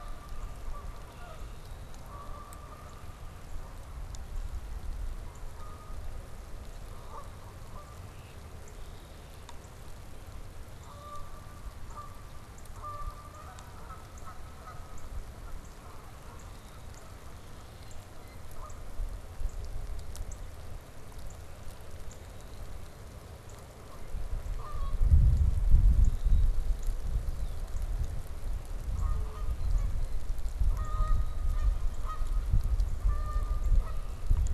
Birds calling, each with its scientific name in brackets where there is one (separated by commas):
Blue Jay (Cyanocitta cristata), Northern Cardinal (Cardinalis cardinalis), Canada Goose (Branta canadensis), Red-winged Blackbird (Agelaius phoeniceus)